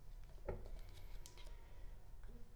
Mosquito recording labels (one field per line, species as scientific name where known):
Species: Culex pipiens complex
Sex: female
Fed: unfed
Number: one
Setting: cup